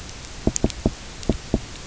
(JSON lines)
{"label": "biophony, knock", "recorder": "SoundTrap 300"}